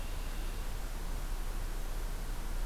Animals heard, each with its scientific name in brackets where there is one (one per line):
Red-winged Blackbird (Agelaius phoeniceus)